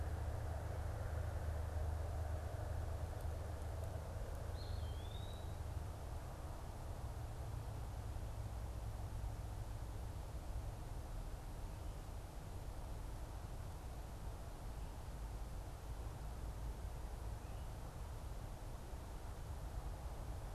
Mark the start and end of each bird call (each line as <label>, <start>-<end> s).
Eastern Wood-Pewee (Contopus virens), 4.4-5.6 s